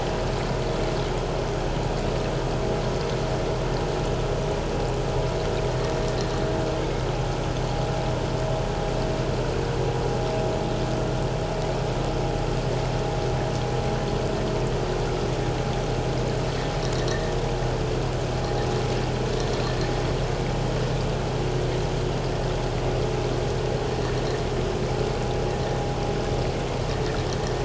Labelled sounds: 17.1	17.3	vessel noise, 1.7 to 2.0 kHz

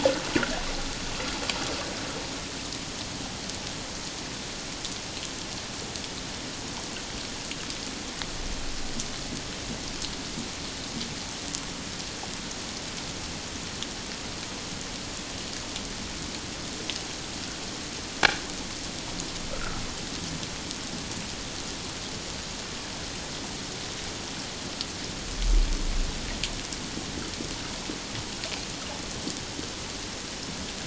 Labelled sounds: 19.5	19.8	water noise, 1.2 to 1.6 kHz

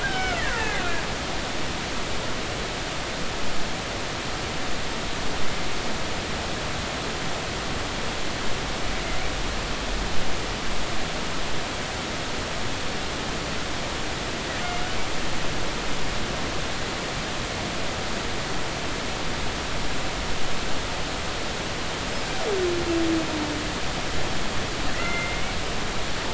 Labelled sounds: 0.0	1.0	killer whale, Bigg's (transient), 0.80 to 5.4 kHz
24.9	25.5	killer whale, Bigg's (transient), 1.2 to 2.3 kHz

